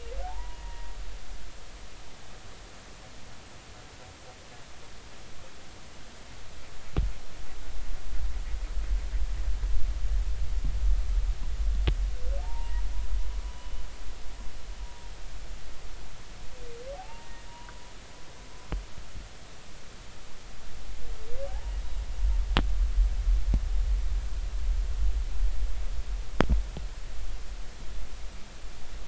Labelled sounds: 0.2	0.9	humpback whale, 0.80 to 1.0 kHz
12.4	12.8	humpback whale, 0.80 to 1.0 kHz
13.4	13.8	humpback whale, 0.96 to 3.2 kHz
14.8	15.1	humpback whale, 0.90 to 0.99 kHz
17.0	17.7	humpback whale, 0.80 to 1.9 kHz
21.5	21.7	humpback whale, 0.80 to 0.99 kHz

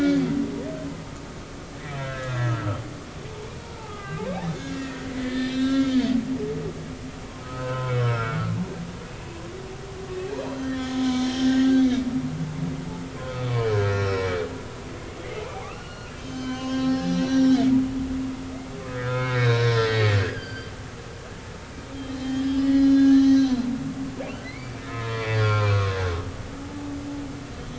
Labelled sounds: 2.0	2.8	humpback whale, 1.2 to 2.0 kHz
3.7	4.2	humpback whale, 1.1 to 2.1 kHz
4.7	6.0	humpback whale, 1.3 to 5.4 kHz
7.3	8.5	humpback whale, 0.99 to 5.4 kHz
10.4	12.1	humpback whale, 1.5 to 5.6 kHz
13.9	14.4	humpback whale, 1.2 to 5.6 kHz
15.6	17.7	humpback whale, 0.96 to 6.3 kHz
18.9	20.7	humpback whale, 0.99 to 5.0 kHz
21.9	24.0	humpback whale, 1.6 to 6.3 kHz
24.4	26.0	humpback whale, 0.93 to 2.4 kHz
26.6	26.9	humpback whale, 0.80 to 0.90 kHz

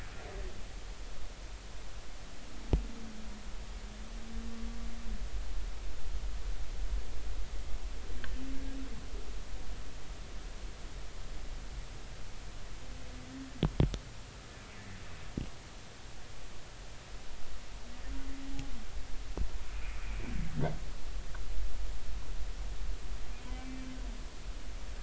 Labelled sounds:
19.7	20.0	humpback whale, 2.1 to 2.6 kHz
23.5	23.9	humpback whale, 2.3 to 2.4 kHz

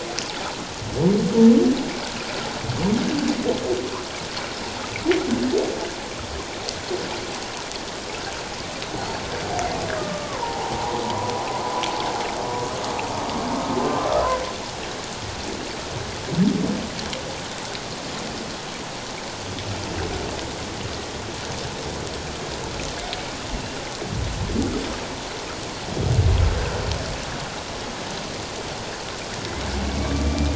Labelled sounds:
8.9	10.8	humpback whale, 0.78 to 4.5 kHz
11.0	11.9	humpback whale, 0.88 to 1.1 kHz
29.8	30.5	humpback whale, 2.2 to 2.5 kHz

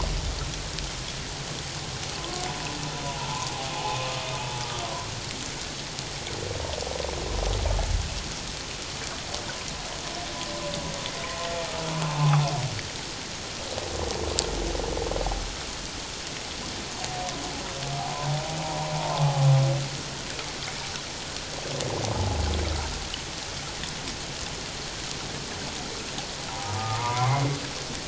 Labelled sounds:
2.2	2.4	humpback whale, 1.0 to 1.1 kHz
3.2	3.5	humpback whale, 0.81 to 1.1 kHz
11.2	11.5	humpback whale, 1.0 to 1.1 kHz
12.1	12.4	humpback whale, 0.78 to 1.1 kHz
18.6	19.4	humpback whale, 0.78 to 1.1 kHz
22.1	22.4	humpback whale, 0.78 to 0.91 kHz
26.6	27.5	humpback whale, 0.78 to 2.2 kHz

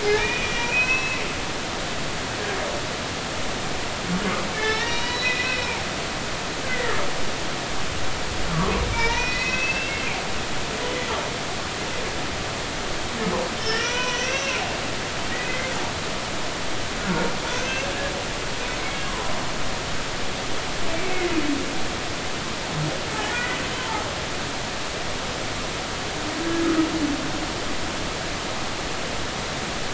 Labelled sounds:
0.0	1.2	humpback whale, 0.80 to 2.7 kHz
4.5	5.8	humpback whale, 0.90 to 5.6 kHz
6.7	7.0	humpback whale, 1.7 to 2.1 kHz
8.9	10.1	humpback whale, 0.86 to 5.8 kHz
13.6	14.6	humpback whale, 0.93 to 6.3 kHz
17.0	17.9	humpback whale, 1.3 to 2.8 kHz
23.2	23.6	humpback whale, 1.4 to 2.0 kHz

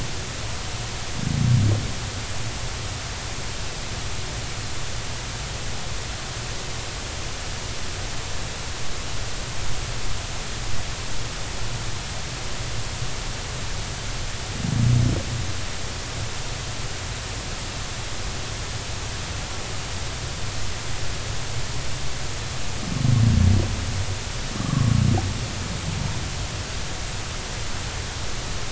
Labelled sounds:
24.6	25.0	humpback whale, 1.0 to 1.2 kHz

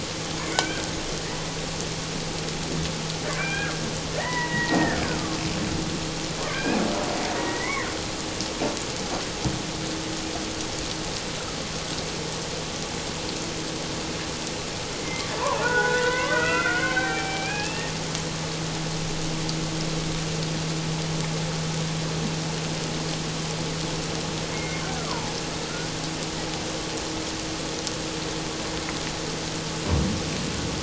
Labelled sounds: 0.4	0.9	killer whale, Bigg's (transient), call T01, 1.4 to 2.5 kHz
3.3	3.7	killer whale, Bigg's (transient), call T01, 1.3 to 2.5 kHz
4.1	5.0	killer whale, Bigg's (transient), call T01, 0.84 to 2.1 kHz
5.0	5.4	killer whale, Bigg's (transient), call T02, 1.1 to 1.7 kHz
6.4	6.6	killer whale, Bigg's (transient), call T02, 1.0 to 1.3 kHz
6.5	6.8	killer whale, Bigg's (transient), call T01, 1.5 to 2.7 kHz
7.3	7.9	killer whale, Bigg's (transient), 1.8 to 2.3 kHz
15.6	17.9	killer whale, Bigg's (transient), 0.78 to 2.8 kHz
24.5	25.3	killer whale, Bigg's (transient), call T04, 0.81 to 2.3 kHz

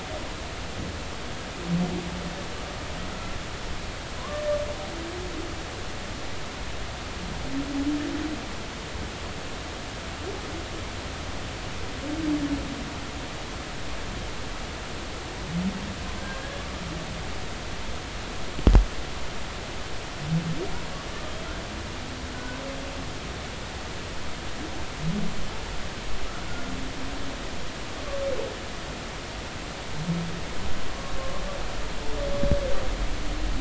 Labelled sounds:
4.2	4.6	humpback whale, 0.96 to 1.8 kHz
16.2	16.6	humpback whale, 1.5 to 1.7 kHz
22.3	22.6	humpback whale, 1.4 to 1.6 kHz
31.2	31.4	humpback whale, 1.0 to 1.2 kHz

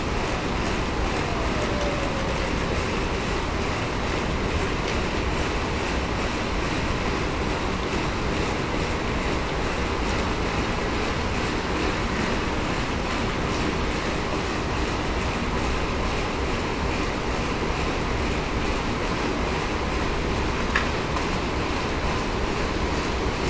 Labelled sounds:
1.7	2.1	humpback whale, 0.54 to 0.63 kHz

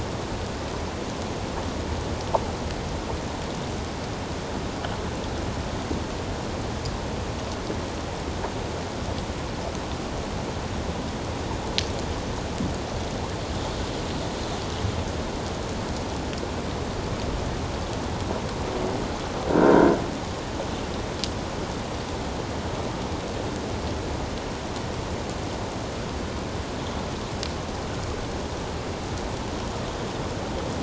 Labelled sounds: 19.5	19.9	croaking sound likely from a nearby submerged object, 1.3 to 1.6 kHz

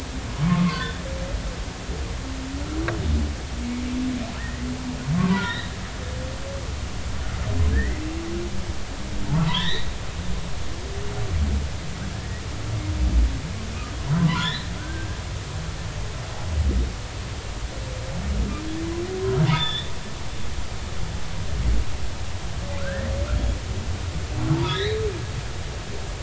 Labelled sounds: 4.4	4.7	humpback whale, 1.6 to 2.1 kHz
5.2	5.7	humpback whale, 0.90 to 4.1 kHz
7.7	8.0	humpback whale, 1.6 to 2.1 kHz
9.3	9.9	humpback whale, 0.86 to 4.2 kHz
12.1	12.4	humpback whale, 1.6 to 2.0 kHz
14.1	15.2	humpback whale, 0.90 to 4.2 kHz
19.5	19.9	humpback whale, 0.90 to 3.8 kHz
22.8	23.1	humpback whale, 1.3 to 2.0 kHz
24.5	25.0	humpback whale, 0.83 to 4.2 kHz

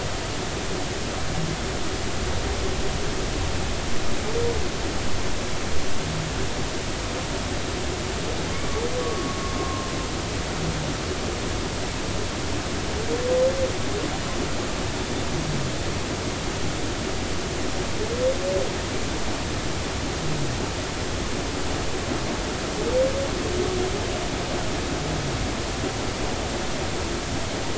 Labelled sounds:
8.5	9.9	humpback whale, 1.0 to 1.2 kHz

